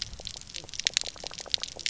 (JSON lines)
{"label": "biophony, pulse", "recorder": "SoundTrap 300"}